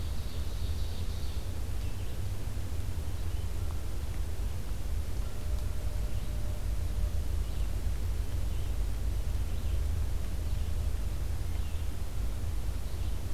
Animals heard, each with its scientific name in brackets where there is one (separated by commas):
Ovenbird (Seiurus aurocapilla), Red-eyed Vireo (Vireo olivaceus)